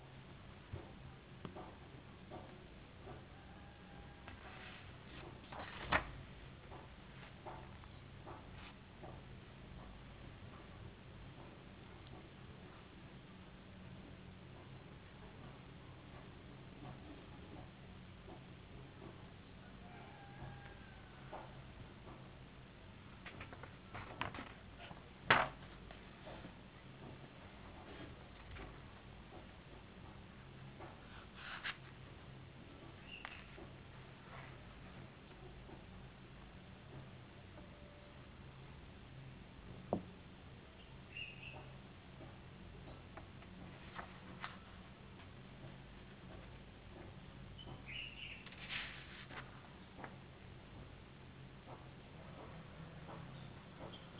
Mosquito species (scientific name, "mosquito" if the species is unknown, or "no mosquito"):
no mosquito